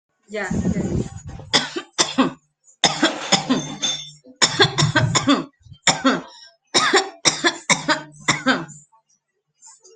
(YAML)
expert_labels:
- quality: ok
  cough_type: unknown
  dyspnea: false
  wheezing: false
  stridor: false
  choking: false
  congestion: false
  nothing: true
  diagnosis: healthy cough
  severity: pseudocough/healthy cough
age: 36
gender: female
respiratory_condition: false
fever_muscle_pain: false
status: COVID-19